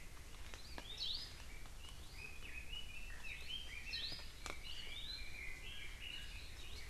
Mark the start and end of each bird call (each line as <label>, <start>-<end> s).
Hawaii Amakihi (Chlorodrepanis virens), 1.0-1.4 s
Red-billed Leiothrix (Leiothrix lutea), 2.1-6.9 s
Hawaii Amakihi (Chlorodrepanis virens), 3.9-4.4 s
Hawaii Amakihi (Chlorodrepanis virens), 4.9-5.5 s